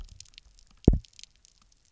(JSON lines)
{"label": "biophony, double pulse", "recorder": "SoundTrap 300"}